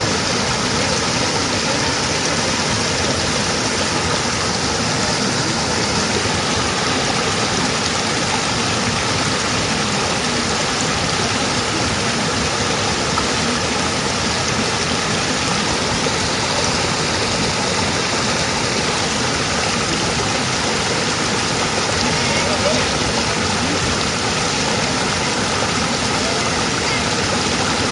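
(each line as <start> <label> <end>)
0.1 Noisy flowing water. 27.9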